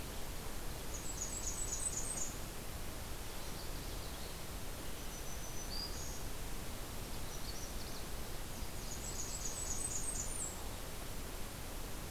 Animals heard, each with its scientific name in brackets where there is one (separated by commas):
Blackburnian Warbler (Setophaga fusca), Magnolia Warbler (Setophaga magnolia), Black-throated Green Warbler (Setophaga virens), Nashville Warbler (Leiothlypis ruficapilla)